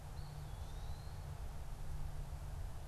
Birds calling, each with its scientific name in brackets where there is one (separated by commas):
Eastern Wood-Pewee (Contopus virens)